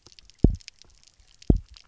{"label": "biophony, double pulse", "recorder": "SoundTrap 300"}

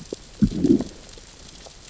{"label": "biophony, growl", "recorder": "SoundTrap 600 or HydroMoth"}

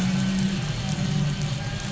{"label": "anthrophony, boat engine", "recorder": "SoundTrap 500"}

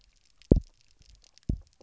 {"label": "biophony, double pulse", "recorder": "SoundTrap 300"}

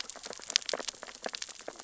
{"label": "biophony, sea urchins (Echinidae)", "recorder": "SoundTrap 600 or HydroMoth"}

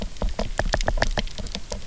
{"label": "biophony, knock", "recorder": "SoundTrap 300"}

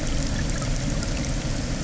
{"label": "anthrophony, boat engine", "recorder": "SoundTrap 300"}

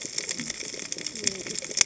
{"label": "biophony, cascading saw", "recorder": "HydroMoth"}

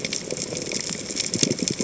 {"label": "biophony, chatter", "recorder": "HydroMoth"}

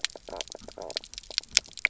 {"label": "biophony, knock croak", "recorder": "SoundTrap 300"}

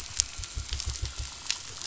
{"label": "biophony", "recorder": "SoundTrap 500"}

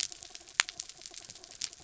{"label": "anthrophony, mechanical", "recorder": "SoundTrap 300"}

